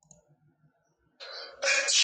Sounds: Sneeze